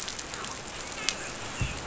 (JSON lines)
{"label": "biophony, dolphin", "recorder": "SoundTrap 500"}